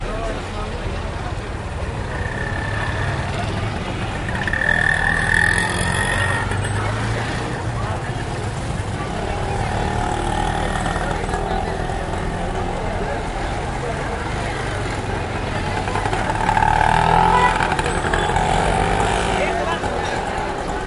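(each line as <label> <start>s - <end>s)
Low cubic motorcycle sounds with muffled speech in the background. 0.0s - 20.9s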